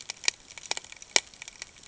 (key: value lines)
label: ambient
recorder: HydroMoth